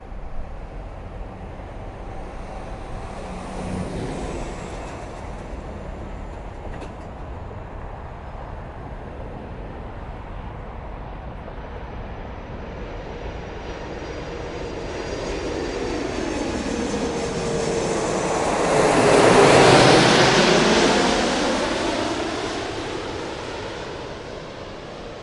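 Continuous wind blowing. 0:00.0 - 0:25.2
A truck or ground vehicle passes by with a low, rolling engine sound. 0:02.8 - 0:05.6
An airplane with active turbines approaches with an increasingly loud engine sound, then passes by and gradually fades away. 0:14.5 - 0:23.0

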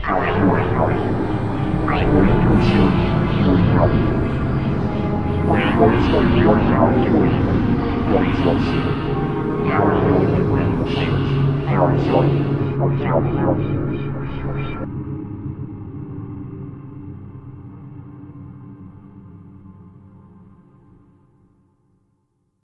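A metallic voice repeats with an echoing effect that fades in and reverberates. 0:00.0 - 0:22.6

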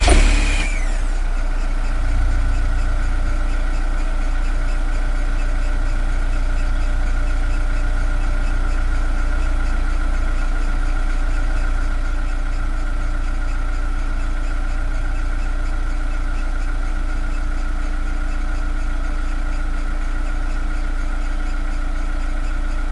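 A car engine starts. 0:00.0 - 0:00.8
A car engine is running. 0:00.8 - 0:22.9

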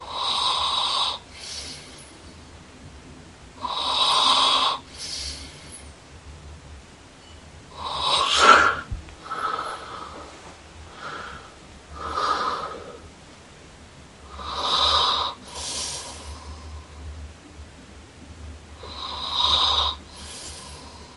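Human snoring. 0:03.7 - 0:05.6
Someone is snoring. 0:07.8 - 0:10.3
Someone is snoring. 0:11.1 - 0:13.1
Someone is snoring. 0:14.4 - 0:16.1
Someone is snoring. 0:18.8 - 0:20.5

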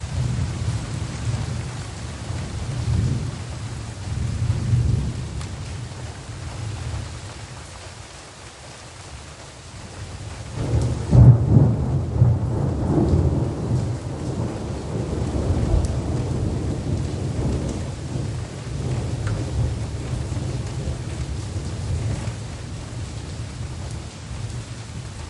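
Loud thunder rolls during rain. 0:00.1 - 0:07.6
Loud thunder rolls during rain. 0:09.7 - 0:25.3

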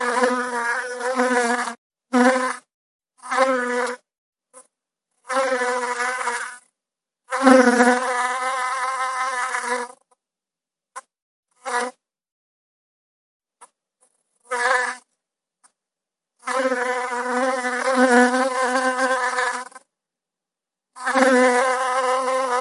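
An insect buzzes while flying overhead. 0:00.0 - 0:04.0
An insect buzzes while flying overhead. 0:05.3 - 0:10.0
An insect buzzes while flying overhead. 0:10.9 - 0:12.0
An insect buzzes while flying overhead. 0:13.6 - 0:15.1
An insect buzzes while flying overhead. 0:16.3 - 0:19.9
An insect buzzes while flying overhead. 0:20.9 - 0:22.6

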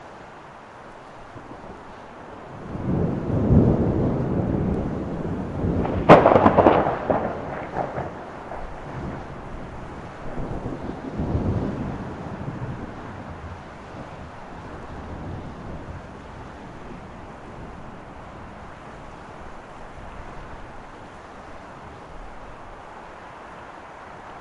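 Rain falling during a storm. 0:00.0 - 0:24.4
Lightning crackles in the distance. 0:01.2 - 0:01.7
Distant thunder rumbling softly. 0:02.6 - 0:05.1
Thunder crackles in the distance. 0:05.6 - 0:06.0
Lightning crackles loudly nearby. 0:06.0 - 0:07.4
Thunder rumbling in the distance. 0:10.2 - 0:11.0
Distant thunder rumbling softly. 0:11.1 - 0:12.0
Faint, muffled thunder in the distance. 0:14.7 - 0:16.1

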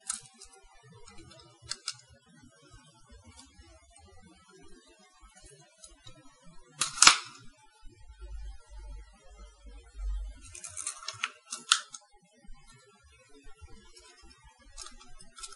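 Quiet clattering sounds. 0:00.1 - 0:02.0
An office stapler is being used. 0:06.8 - 0:07.2
Quiet clattering sounds. 0:10.5 - 0:12.0
Quiet clattering sounds. 0:14.8 - 0:15.6

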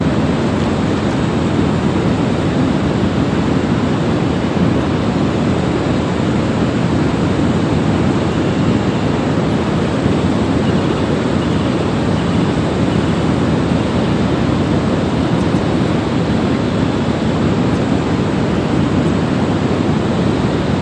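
A loud constant static sound, possibly caused by a waterfall, wind, or traffic, in the outdoors. 0:00.0 - 0:20.8
Very faint footsteps are heard in the background. 0:00.9 - 0:03.0
A faint repeating bird call in the background. 0:10.5 - 0:14.2
A faint muffled conversation in the background. 0:15.5 - 0:20.2

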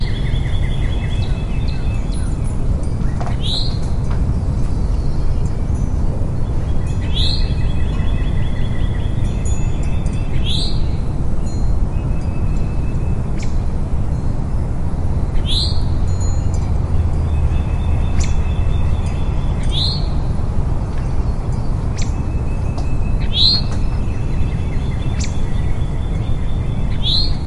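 Various birds chirp in different tones. 0:00.0 - 0:04.7
A gentle, continuous whooshing of the wind is heard. 0:00.0 - 0:27.5
A bell chimes softly in the distance. 0:05.4 - 0:08.8
Two birds chirp in different tones in nature. 0:07.1 - 0:11.4
A bell chimes softly in the distance. 0:09.6 - 0:12.4
A bird chirps. 0:13.2 - 0:13.8
A bird chirps continuously. 0:15.2 - 0:16.0
A bell chimes softly in the distance. 0:16.1 - 0:17.2
Various birds chirp in different tones. 0:17.3 - 0:20.1
A bell chimes softly in the distance. 0:19.0 - 0:20.3
Various birds chirp in different tones. 0:21.9 - 0:27.4

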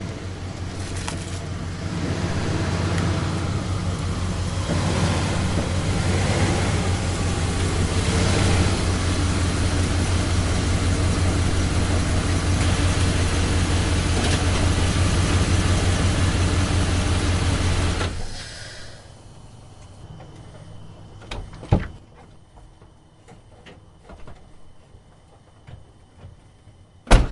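An engine grows louder and then shuts down. 0:00.0 - 0:19.2
A car door opening nearby. 0:21.2 - 0:22.5
A car door slams shut nearby. 0:26.8 - 0:27.3

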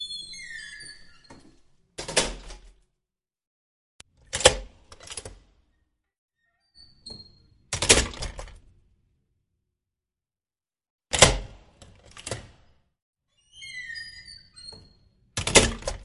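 A door locking. 0:02.0 - 0:02.5
A door locking. 0:04.3 - 0:05.3
A door locking. 0:07.7 - 0:08.5
A door locking. 0:11.1 - 0:12.4
A door locking. 0:15.3 - 0:16.0

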